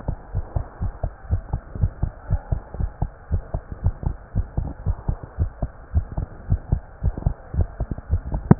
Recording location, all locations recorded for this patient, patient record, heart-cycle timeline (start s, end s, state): aortic valve (AV)
aortic valve (AV)+pulmonary valve (PV)+tricuspid valve (TV)+mitral valve (MV)
#Age: Child
#Sex: Male
#Height: 122.0 cm
#Weight: 28.1 kg
#Pregnancy status: False
#Murmur: Absent
#Murmur locations: nan
#Most audible location: nan
#Systolic murmur timing: nan
#Systolic murmur shape: nan
#Systolic murmur grading: nan
#Systolic murmur pitch: nan
#Systolic murmur quality: nan
#Diastolic murmur timing: nan
#Diastolic murmur shape: nan
#Diastolic murmur grading: nan
#Diastolic murmur pitch: nan
#Diastolic murmur quality: nan
#Outcome: Normal
#Campaign: 2015 screening campaign
0.00	0.31	unannotated
0.31	0.44	S1
0.44	0.52	systole
0.52	0.64	S2
0.64	0.80	diastole
0.80	0.92	S1
0.92	1.00	systole
1.00	1.12	S2
1.12	1.30	diastole
1.30	1.44	S1
1.44	1.50	systole
1.50	1.60	S2
1.60	1.76	diastole
1.76	1.90	S1
1.90	2.00	systole
2.00	2.14	S2
2.14	2.30	diastole
2.30	2.42	S1
2.42	2.50	systole
2.50	2.60	S2
2.60	2.76	diastole
2.76	2.90	S1
2.90	3.00	systole
3.00	3.10	S2
3.10	3.30	diastole
3.30	3.44	S1
3.44	3.52	systole
3.52	3.62	S2
3.62	3.84	diastole
3.84	3.96	S1
3.96	4.04	systole
4.04	4.18	S2
4.18	4.36	diastole
4.36	4.48	S1
4.48	4.56	systole
4.56	4.70	S2
4.70	4.88	diastole
4.88	4.98	S1
4.98	5.06	systole
5.06	5.20	S2
5.20	5.40	diastole
5.40	5.52	S1
5.52	5.62	systole
5.62	5.72	S2
5.72	5.94	diastole
5.94	6.08	S1
6.08	6.16	systole
6.16	6.28	S2
6.28	6.48	diastole
6.48	6.62	S1
6.62	6.70	systole
6.70	6.82	S2
6.82	7.02	diastole
7.02	7.16	S1
7.16	7.24	systole
7.24	7.36	S2
7.36	7.56	diastole
7.56	7.70	S1
7.70	7.78	systole
7.78	7.88	S2
7.88	8.09	diastole
8.09	8.21	S1
8.21	8.59	unannotated